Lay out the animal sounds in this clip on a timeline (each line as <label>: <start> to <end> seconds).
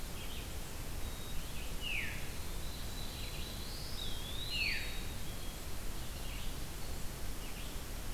Golden-crowned Kinglet (Regulus satrapa): 0.0 to 8.1 seconds
Red-eyed Vireo (Vireo olivaceus): 0.0 to 8.1 seconds
Black-capped Chickadee (Poecile atricapillus): 0.9 to 1.8 seconds
Veery (Catharus fuscescens): 1.7 to 2.4 seconds
Black-throated Blue Warbler (Setophaga caerulescens): 2.7 to 4.4 seconds
Eastern Wood-Pewee (Contopus virens): 3.9 to 5.1 seconds
Veery (Catharus fuscescens): 4.4 to 4.8 seconds
Black-capped Chickadee (Poecile atricapillus): 4.8 to 5.7 seconds